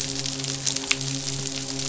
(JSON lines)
{"label": "biophony, midshipman", "recorder": "SoundTrap 500"}